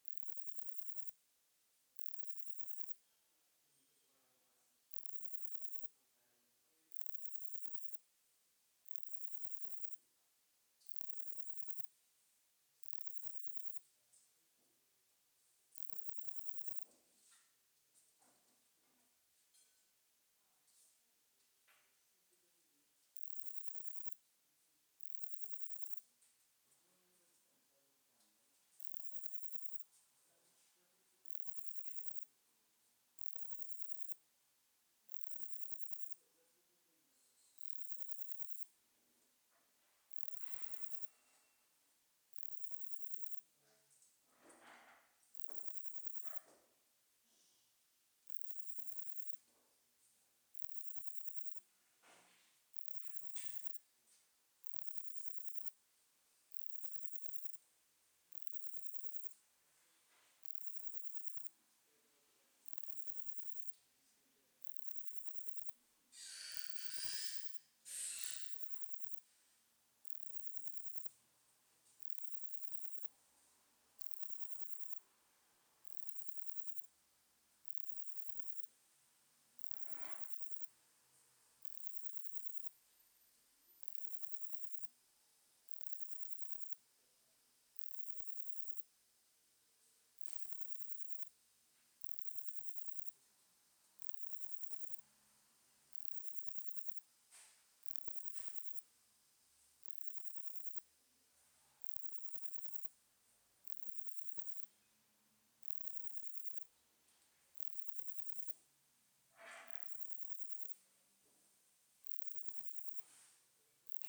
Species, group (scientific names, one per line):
Parnassiana fusca
Orthoptera